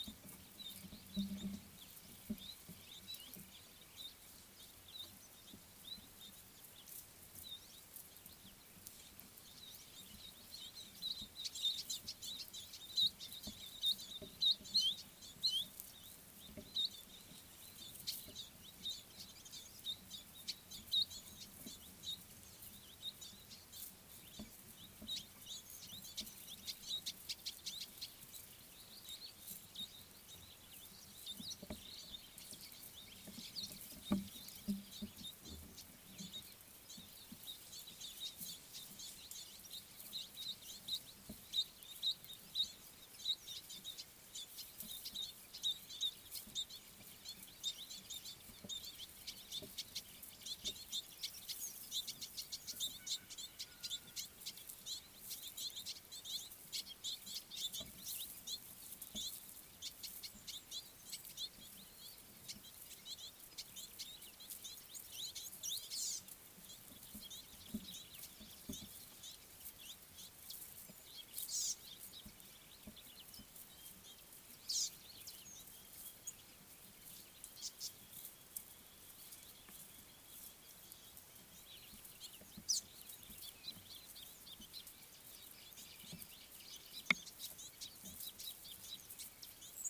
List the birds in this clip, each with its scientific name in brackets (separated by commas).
Tawny-flanked Prinia (Prinia subflava), Red-billed Firefinch (Lagonosticta senegala)